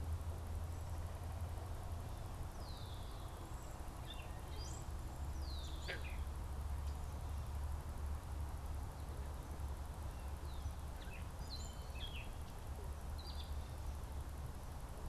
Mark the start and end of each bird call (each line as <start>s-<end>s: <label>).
2.5s-6.3s: Red-winged Blackbird (Agelaius phoeniceus)
3.1s-5.0s: Cedar Waxwing (Bombycilla cedrorum)
10.6s-14.0s: Gray Catbird (Dumetella carolinensis)